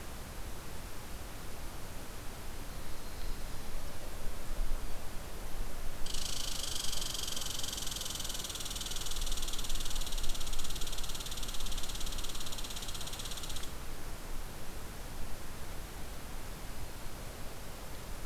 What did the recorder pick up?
Yellow-rumped Warbler, Red Squirrel